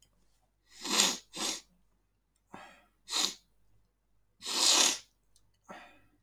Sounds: Sniff